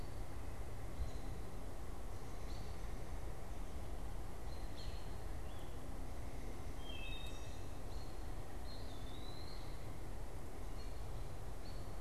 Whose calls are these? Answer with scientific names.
Turdus migratorius, Hylocichla mustelina, Contopus virens